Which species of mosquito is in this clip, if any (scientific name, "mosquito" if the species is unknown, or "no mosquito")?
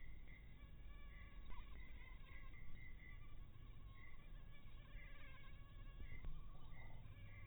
mosquito